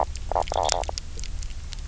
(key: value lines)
label: biophony, knock croak
recorder: SoundTrap 300